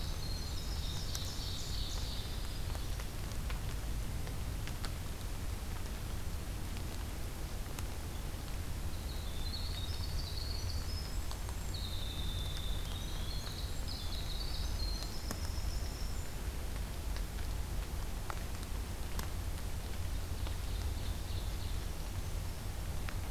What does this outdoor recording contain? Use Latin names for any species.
Troglodytes hiemalis, Seiurus aurocapilla, Setophaga virens